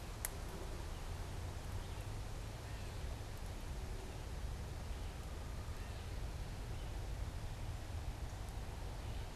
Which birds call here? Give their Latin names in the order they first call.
Dumetella carolinensis, Vireo olivaceus